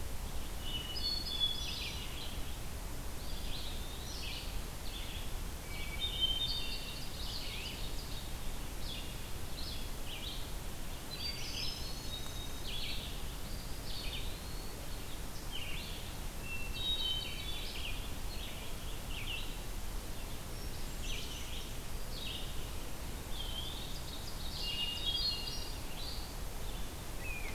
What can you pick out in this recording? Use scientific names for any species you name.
Vireo olivaceus, Catharus guttatus, Contopus virens, Seiurus aurocapilla